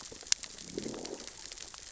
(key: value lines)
label: biophony, growl
recorder: SoundTrap 600 or HydroMoth